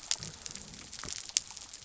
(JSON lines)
{"label": "biophony", "recorder": "SoundTrap 300"}